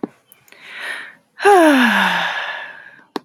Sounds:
Sigh